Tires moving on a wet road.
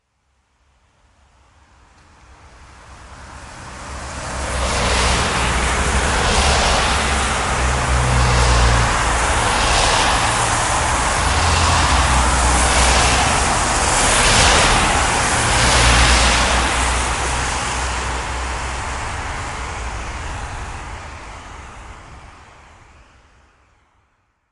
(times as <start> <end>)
4.2 20.2